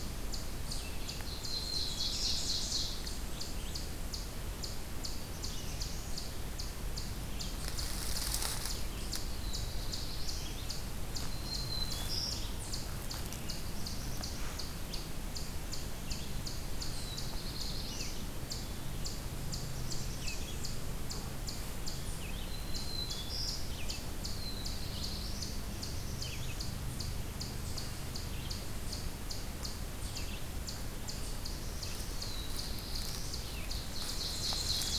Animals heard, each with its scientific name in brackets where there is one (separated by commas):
Eastern Chipmunk (Tamias striatus), Red-eyed Vireo (Vireo olivaceus), Ovenbird (Seiurus aurocapilla), Black-throated Green Warbler (Setophaga virens), Black-throated Blue Warbler (Setophaga caerulescens)